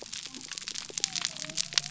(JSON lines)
{"label": "biophony", "recorder": "SoundTrap 300"}